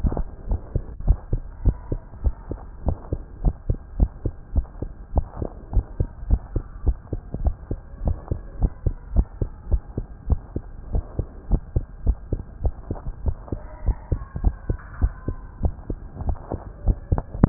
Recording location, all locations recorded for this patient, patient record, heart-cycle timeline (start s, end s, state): tricuspid valve (TV)
aortic valve (AV)+pulmonary valve (PV)+tricuspid valve (TV)+mitral valve (MV)
#Age: Child
#Sex: Male
#Height: 129.0 cm
#Weight: 25.0 kg
#Pregnancy status: False
#Murmur: Absent
#Murmur locations: nan
#Most audible location: nan
#Systolic murmur timing: nan
#Systolic murmur shape: nan
#Systolic murmur grading: nan
#Systolic murmur pitch: nan
#Systolic murmur quality: nan
#Diastolic murmur timing: nan
#Diastolic murmur shape: nan
#Diastolic murmur grading: nan
#Diastolic murmur pitch: nan
#Diastolic murmur quality: nan
#Outcome: Normal
#Campaign: 2015 screening campaign
0.00	0.45	unannotated
0.45	0.62	S1
0.62	0.74	systole
0.74	0.84	S2
0.84	1.02	diastole
1.02	1.18	S1
1.18	1.30	systole
1.30	1.44	S2
1.44	1.62	diastole
1.62	1.76	S1
1.76	1.90	systole
1.90	2.00	S2
2.00	2.20	diastole
2.20	2.34	S1
2.34	2.50	systole
2.50	2.58	S2
2.58	2.82	diastole
2.82	2.96	S1
2.96	3.08	systole
3.08	3.20	S2
3.20	3.42	diastole
3.42	3.56	S1
3.56	3.68	systole
3.68	3.78	S2
3.78	3.96	diastole
3.96	4.10	S1
4.10	4.23	systole
4.23	4.34	S2
4.34	4.54	diastole
4.54	4.66	S1
4.66	4.80	systole
4.80	4.90	S2
4.90	5.12	diastole
5.12	5.26	S1
5.26	5.40	systole
5.40	5.50	S2
5.50	5.72	diastole
5.72	5.86	S1
5.86	5.98	systole
5.98	6.08	S2
6.08	6.26	diastole
6.26	6.42	S1
6.42	6.54	systole
6.54	6.64	S2
6.64	6.84	diastole
6.84	6.98	S1
6.98	7.10	systole
7.10	7.22	S2
7.22	7.40	diastole
7.40	7.54	S1
7.54	7.68	systole
7.68	7.80	S2
7.80	8.02	diastole
8.02	8.18	S1
8.18	8.28	systole
8.28	8.40	S2
8.40	8.58	diastole
8.58	8.72	S1
8.72	8.82	systole
8.82	8.94	S2
8.94	9.12	diastole
9.12	9.28	S1
9.28	9.39	systole
9.39	9.50	S2
9.50	9.68	diastole
9.68	9.82	S1
9.82	9.95	systole
9.95	10.06	S2
10.06	10.25	diastole
10.25	10.42	S1
10.42	10.54	systole
10.54	10.64	S2
10.64	10.90	diastole
10.90	11.04	S1
11.04	11.16	systole
11.16	11.28	S2
11.28	11.50	diastole
11.50	11.62	S1
11.62	11.72	systole
11.72	11.86	S2
11.86	12.04	diastole
12.04	12.18	S1
12.18	12.30	systole
12.30	12.40	S2
12.40	12.62	diastole
12.62	12.76	S1
12.76	12.89	systole
12.89	13.00	S2
13.00	13.22	diastole
13.22	13.36	S1
13.36	13.50	systole
13.50	13.62	S2
13.62	13.84	diastole
13.84	13.96	S1
13.96	14.08	systole
14.08	14.20	S2
14.20	14.40	diastole
14.40	14.56	S1
14.56	14.66	systole
14.66	14.78	S2
14.78	15.00	diastole
15.00	15.14	S1
15.14	15.26	systole
15.26	15.38	S2
15.38	15.59	diastole
15.59	15.74	S1
15.74	15.88	systole
15.88	15.98	S2
15.98	17.49	unannotated